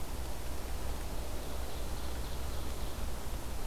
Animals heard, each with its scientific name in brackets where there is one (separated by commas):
Ovenbird (Seiurus aurocapilla)